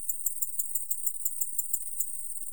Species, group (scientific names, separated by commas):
Decticus albifrons, Orthoptera